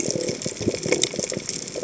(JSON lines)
{"label": "biophony", "recorder": "HydroMoth"}